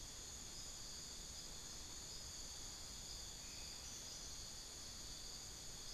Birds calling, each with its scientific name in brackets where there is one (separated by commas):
unidentified bird